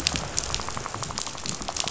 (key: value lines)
label: biophony, rattle
recorder: SoundTrap 500